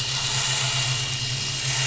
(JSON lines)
{"label": "anthrophony, boat engine", "recorder": "SoundTrap 500"}